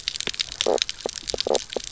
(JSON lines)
{"label": "biophony, knock croak", "recorder": "SoundTrap 300"}